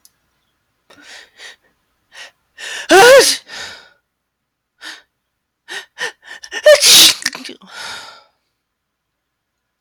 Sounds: Sneeze